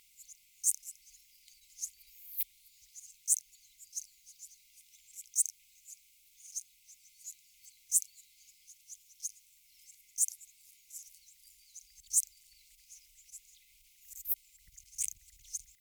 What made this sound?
Psorodonotus macedonicus, an orthopteran